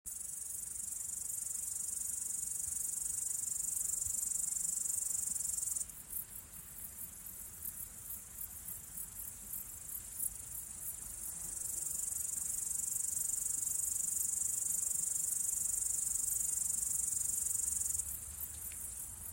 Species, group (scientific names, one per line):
Tettigonia cantans
Orthoptera